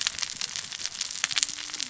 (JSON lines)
{"label": "biophony, cascading saw", "recorder": "SoundTrap 600 or HydroMoth"}